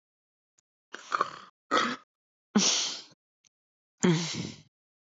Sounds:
Throat clearing